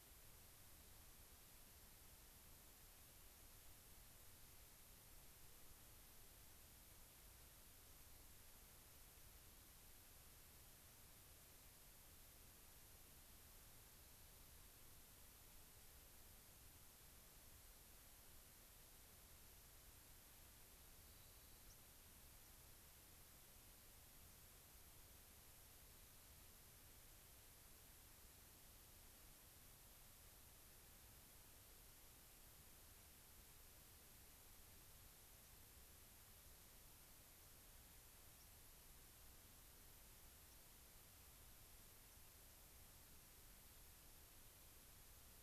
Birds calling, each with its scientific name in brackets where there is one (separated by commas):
White-crowned Sparrow (Zonotrichia leucophrys), Rock Wren (Salpinctes obsoletus)